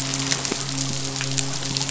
{"label": "biophony, midshipman", "recorder": "SoundTrap 500"}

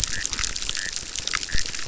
{"label": "biophony, chorus", "recorder": "SoundTrap 600"}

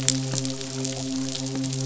{"label": "biophony, midshipman", "recorder": "SoundTrap 500"}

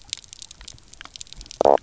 {"label": "biophony, knock croak", "recorder": "SoundTrap 300"}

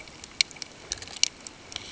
{"label": "ambient", "recorder": "HydroMoth"}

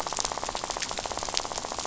{"label": "biophony, rattle", "recorder": "SoundTrap 500"}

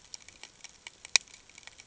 {"label": "ambient", "recorder": "HydroMoth"}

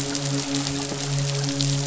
{"label": "biophony, midshipman", "recorder": "SoundTrap 500"}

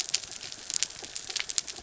{"label": "anthrophony, mechanical", "recorder": "SoundTrap 300"}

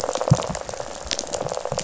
{"label": "biophony, rattle", "recorder": "SoundTrap 500"}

